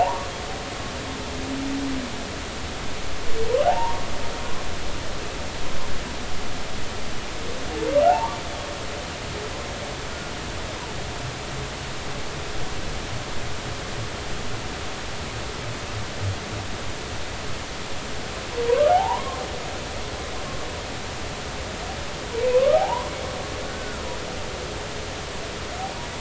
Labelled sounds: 0.0	0.3	humpback whale, 0.80 to 1.2 kHz
3.7	4.1	humpback whale, 0.80 to 1.2 kHz
8.0	8.4	humpback whale, 0.80 to 1.2 kHz
18.7	19.4	humpback whale, 0.80 to 1.3 kHz
22.5	23.1	humpback whale, 0.80 to 1.3 kHz
23.6	24.0	humpback whale, 1.3 to 1.6 kHz

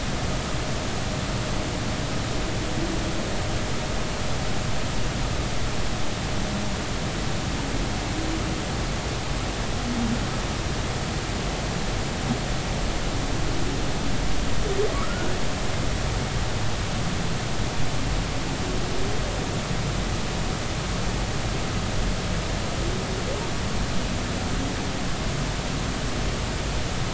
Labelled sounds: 14.9	15.4	humpback whale, 1.1 to 1.6 kHz

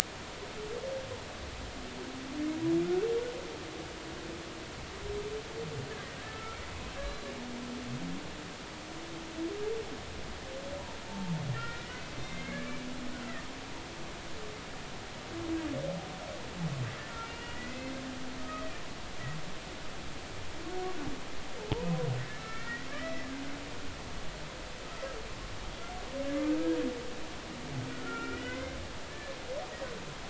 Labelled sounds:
6.2	6.6	humpback whale, 1.3 to 1.4 kHz
6.9	7.3	humpback whale, 1.5 to 4.1 kHz
11.1	12.7	humpback whale, 0.83 to 2.4 kHz
17.3	17.9	humpback whale, 1.9 to 3.0 kHz
18.4	18.7	humpback whale, 1.2 to 1.3 kHz
22.4	23.3	humpback whale, 1.3 to 2.3 kHz
27.9	29.3	humpback whale, 1.3 to 2.2 kHz

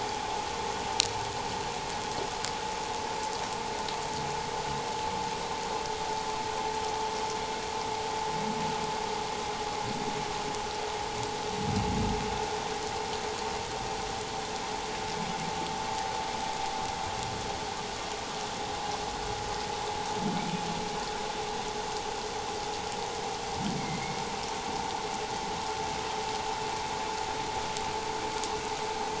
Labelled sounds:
23.8	24.2	humpback whale, 2.0 to 2.3 kHz

